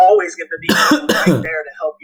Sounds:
Cough